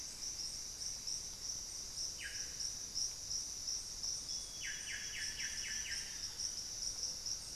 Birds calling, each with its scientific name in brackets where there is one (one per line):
Solitary Black Cacique (Cacicus solitarius)
Amazonian Grosbeak (Cyanoloxia rothschildii)